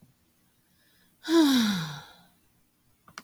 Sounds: Sigh